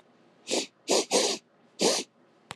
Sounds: Sniff